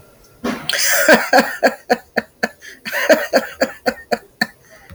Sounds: Laughter